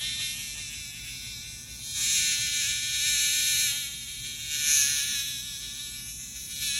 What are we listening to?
Neotibicen superbus, a cicada